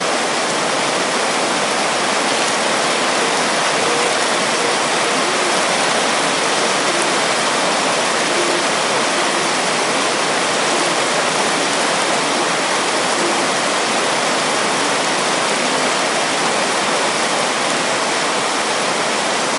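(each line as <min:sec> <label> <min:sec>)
0:00.1 Heavy waves at the beach. 0:19.6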